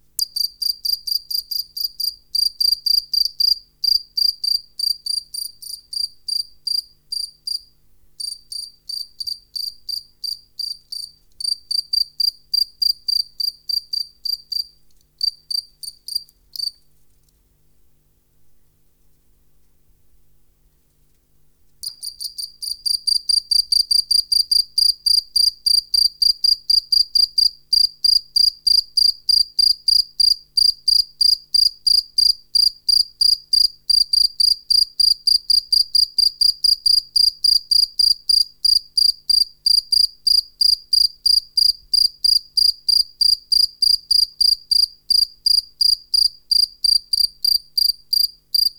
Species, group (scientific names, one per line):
Gryllus bimaculatus
Orthoptera